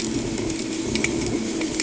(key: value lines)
label: anthrophony, boat engine
recorder: HydroMoth